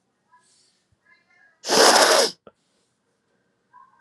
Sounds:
Sniff